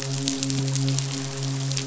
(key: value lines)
label: biophony, midshipman
recorder: SoundTrap 500